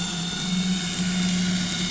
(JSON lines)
{"label": "anthrophony, boat engine", "recorder": "SoundTrap 500"}